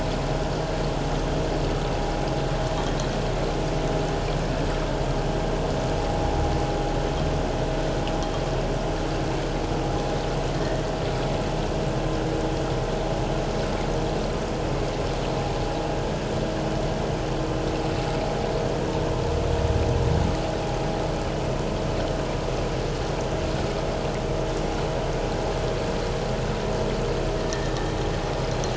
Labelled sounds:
27.4	27.8	vessel noise, 1.7 to 2.0 kHz

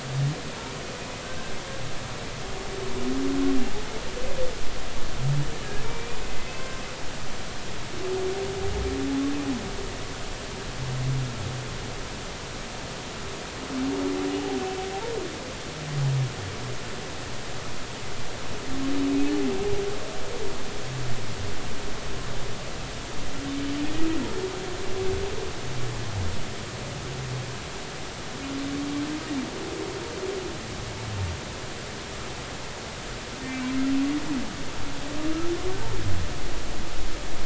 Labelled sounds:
1.2	1.5	humpback whale, 1.5 to 1.7 kHz
5.8	6.8	humpback whale, 1.0 to 2.5 kHz
19.1	19.3	humpback whale, 2.5 to 2.6 kHz
23.8	24.1	humpback whale, 1.8 to 2.0 kHz
33.5	33.7	humpback whale, 2.2 to 2.4 kHz

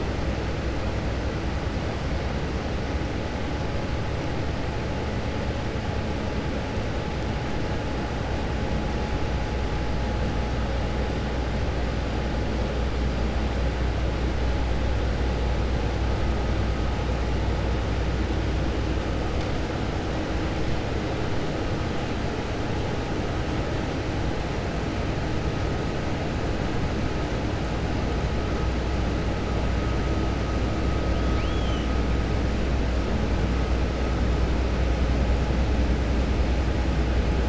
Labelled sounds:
31.3	31.9	killer whale, Bigg's (transient), 2.2 to 4.3 kHz

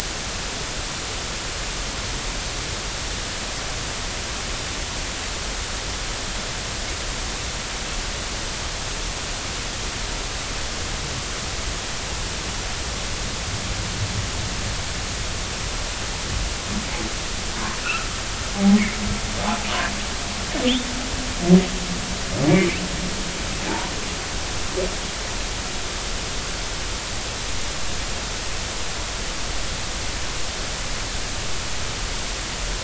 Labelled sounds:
17.8	18.8	humpback whale, 0.80 to 1.5 kHz
22.5	22.8	humpback whale, 2.0 to 2.5 kHz
23.7	23.9	humpback whale, 0.83 to 1.1 kHz

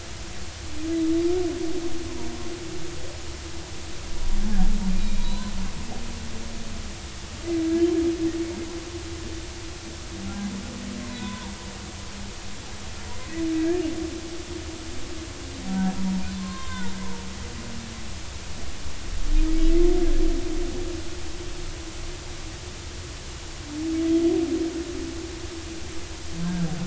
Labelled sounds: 4.9	5.5	humpback whale, 0.90 to 4.1 kHz
11.1	11.6	humpback whale, 0.90 to 3.6 kHz
13.6	13.9	humpback whale, 1.6 to 1.8 kHz
16.3	16.9	humpback whale, 0.86 to 3.7 kHz
26.4	26.7	humpback whale, 1.5 to 1.7 kHz

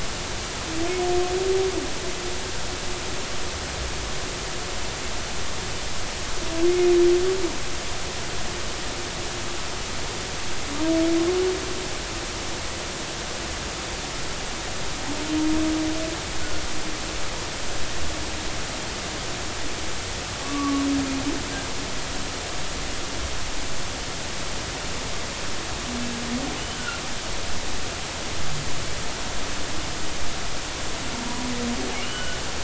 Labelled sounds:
20.4	20.9	humpback whale, 1.0 to 1.2 kHz
26.7	27.0	humpback whale, 1.3 to 1.6 kHz
32.0	32.4	humpback whale, 1.4 to 3.0 kHz

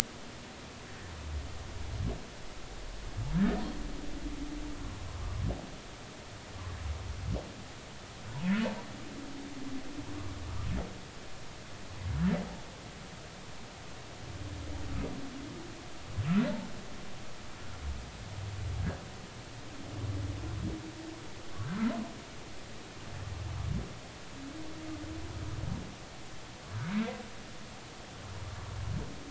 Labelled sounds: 3.4	3.6	humpback whale, 1.6 to 1.9 kHz
26.8	27.1	humpback whale, 2.1 to 2.3 kHz

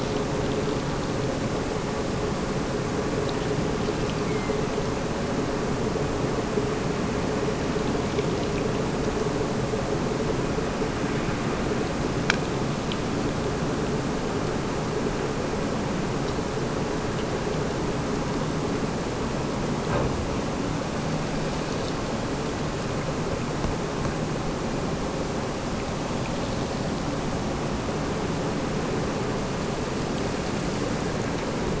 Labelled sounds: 3.8	4.8	killer whale, Bigg's (transient), Gulf of Alaska transient, 1.9 to 2.8 kHz

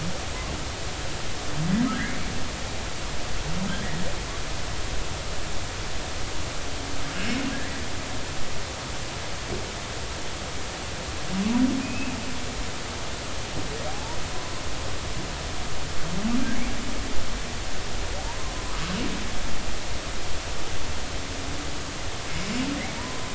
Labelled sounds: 1.9	2.2	humpback whale, 1.4 to 2.3 kHz
3.7	4.0	humpback whale, 1.5 to 1.8 kHz
7.1	7.8	humpback whale, 1.6 to 3.0 kHz
11.8	12.2	humpback whale, 2.4 to 2.9 kHz
13.9	14.2	humpback whale, 0.80 to 1.0 kHz
18.2	18.5	humpback whale, 0.86 to 1.1 kHz
23.0	23.3	humpback whale, 0.90 to 1.1 kHz

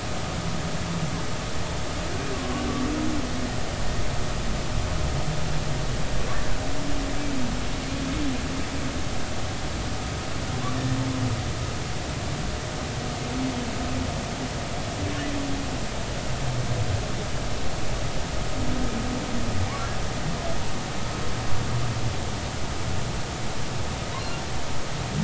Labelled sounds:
2.3	2.6	humpback whale, 1.0 to 1.2 kHz

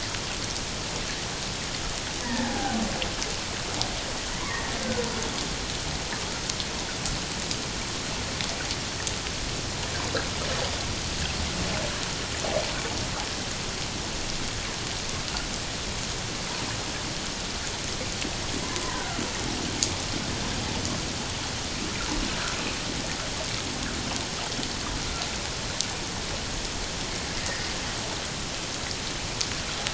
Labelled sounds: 2.2	2.8	humpback whale, 0.78 to 2.0 kHz
4.4	5.1	humpback whale, 0.94 to 2.3 kHz
18.6	19.2	killer whale, Bigg's (transient), 0.91 to 1.7 kHz

